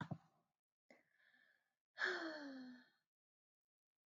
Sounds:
Sigh